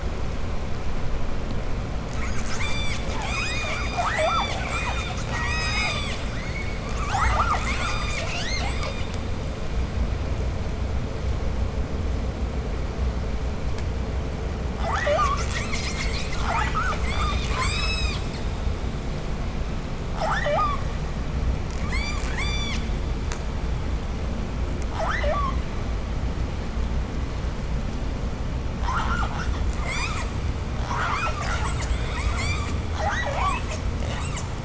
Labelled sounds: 2.0	9.9	killer whale, southern resident, J pod, 0.42 to 8.0 kHz
14.7	17.0	killer whale, southern resident, J pod, call S10, 0.40 to 8.0 kHz
17.0	18.4	killer whale, southern resident, J pod, 0.72 to 8.0 kHz
20.0	21.1	killer whale, southern resident, J pod, 0.37 to 8.0 kHz
21.7	23.0	killer whale, southern resident, J pod, 0.62 to 8.0 kHz
24.8	25.6	killer whale, southern resident, J pod, 0.35 to 8.0 kHz
28.8	29.7	killer whale, southern resident, J pod, call S10, 0.52 to 8.0 kHz
29.8	30.4	killer whale, southern resident, J pod, 0.70 to 8.0 kHz
30.8	34.6	killer whale, southern resident, J pod, 0.17 to 8.0 kHz

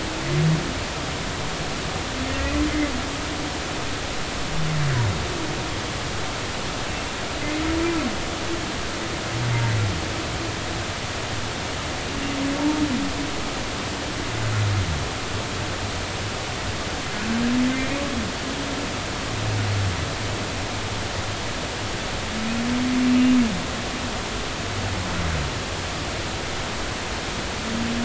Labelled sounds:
2.3	2.6	humpback whale, 1.8 to 2.0 kHz
17.7	18.0	humpback whale, 2.0 to 2.3 kHz

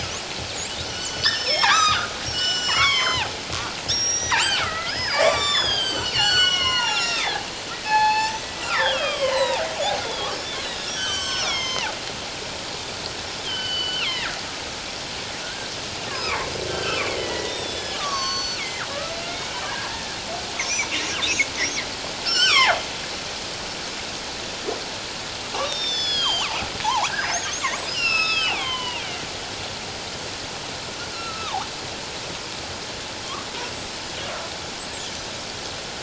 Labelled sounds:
0.8	3.3	killer whale, northern resident, G clan, 0.78 to 7.4 kHz
3.9	7.4	killer whale, northern resident, G clan, 0.78 to 8.0 kHz
7.8	9.6	killer whale, northern resident, G clan, 0.78 to 8.0 kHz
10.0	11.9	killer whale, northern resident, G clan, 0.78 to 8.0 kHz
13.4	14.3	killer whale, northern resident, G clan, 1.3 to 4.8 kHz
15.4	15.7	killer whale, northern resident, G clan, 1.4 to 1.7 kHz
16.2	18.9	killer whale, northern resident, G clan, 1.0 to 8.0 kHz
19.2	20.2	killer whale, northern resident, G clan, 1.5 to 2.3 kHz
22.2	22.8	killer whale, northern resident, G clan, 0.78 to 5.8 kHz
25.6	29.3	killer whale, northern resident, G clan, 0.78 to 7.0 kHz
31.1	31.7	killer whale, northern resident, G clan, 0.78 to 4.2 kHz
33.6	34.2	killer whale, northern resident, G clan, 4.9 to 7.9 kHz

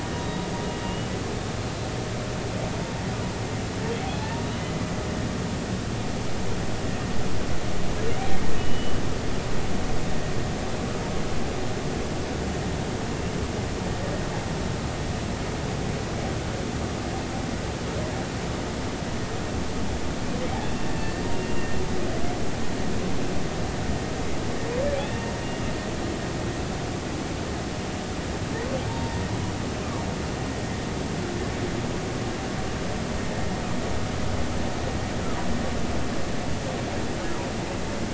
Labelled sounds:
0.1	1.1	humpback whale, 2.8 to 3.9 kHz
4.2	4.7	humpback whale, 0.83 to 3.1 kHz
8.6	9.0	humpback whale, 2.8 to 3.0 kHz
20.6	21.7	humpback whale, 2.6 to 2.8 kHz
25.1	25.3	humpback whale, 2.7 to 2.8 kHz
28.9	29.2	humpback whale, 0.86 to 0.99 kHz

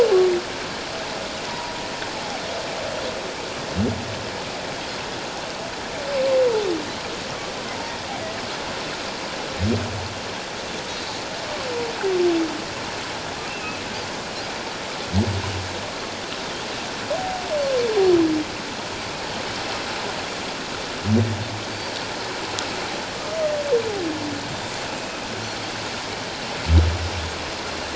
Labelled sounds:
1.4	1.8	humpback whale, 0.91 to 1.1 kHz
13.5	13.8	humpback whale, 2.5 to 2.8 kHz
25.0	25.2	humpback whale, 2.5 to 2.6 kHz

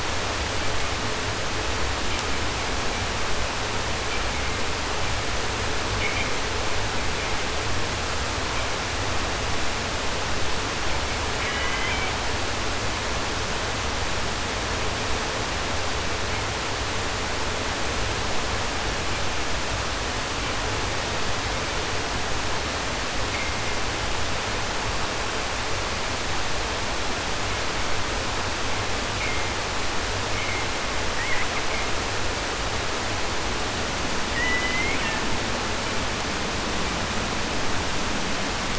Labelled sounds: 11.2	12.2	killer whale, southern resident, J pod, call S01, 0.10 to 3.6 kHz
31.1	31.6	killer whale, 0.21 to 3.0 kHz
34.3	35.4	killer whale, southern resident, J pod, call S01, 0.10 to 4.0 kHz

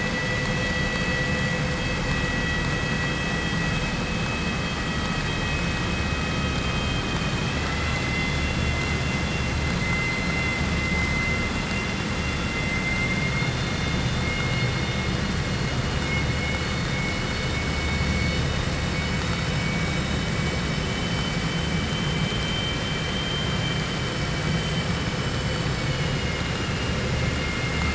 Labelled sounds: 17.8	18.6	vessel noise, 2.2 to 5.2 kHz
20.6	21.4	vessel noise, 2.3 to 3.9 kHz

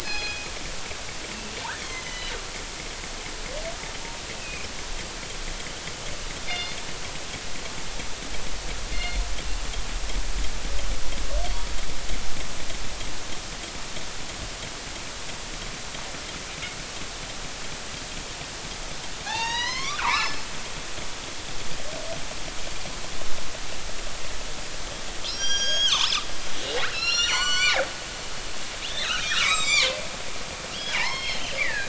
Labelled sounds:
1.8	2.4	killer whale, northern resident, G clan, 1.9 to 6.4 kHz
3.0	4.7	killer whale, northern resident, G clan, 2.0 to 3.1 kHz
6.5	6.8	killer whale, northern resident, G clan, 2.0 to 5.1 kHz
8.9	9.2	killer whale, northern resident, G clan, 2.0 to 4.3 kHz
19.2	20.4	killer whale, northern resident, G clan, 0.80 to 6.8 kHz
25.3	26.2	killer whale, northern resident, G clan, 0.83 to 8.0 kHz
26.9	27.8	killer whale, northern resident, G clan, 0.86 to 7.5 kHz
28.8	30.0	killer whale, northern resident, G clan, 0.96 to 7.8 kHz
30.7	31.8	killer whale, northern resident, G clan, 0.80 to 4.5 kHz

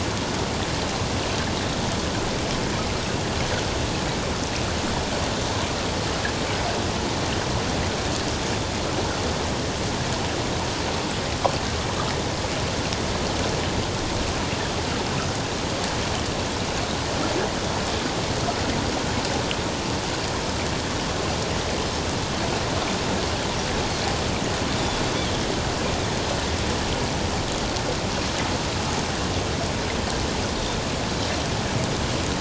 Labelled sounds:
24.7	25.0	Pacific white-sided dolphin, 3.3 to 3.6 kHz

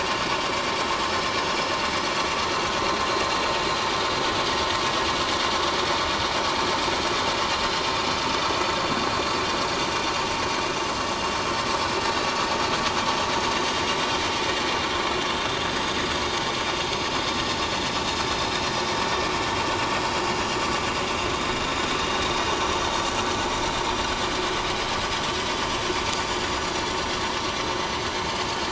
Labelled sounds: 15.7	16.1	vessel noise, 6.3 to 6.7 kHz

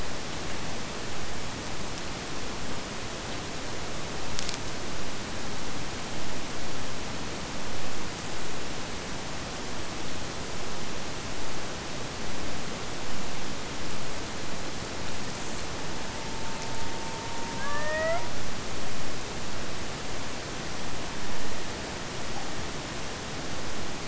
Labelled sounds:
15.7	18.3	killer whale, Bigg's (transient), AT1 transient, 0.53 to 3.0 kHz

